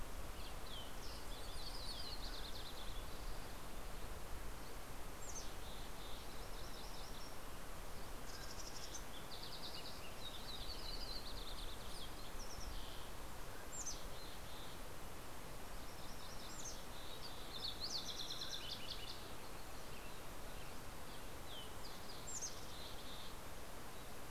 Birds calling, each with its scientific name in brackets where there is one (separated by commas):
Green-tailed Towhee (Pipilo chlorurus), MacGillivray's Warbler (Geothlypis tolmiei), Yellow-rumped Warbler (Setophaga coronata), Mountain Quail (Oreortyx pictus), Dusky Flycatcher (Empidonax oberholseri), Mountain Chickadee (Poecile gambeli)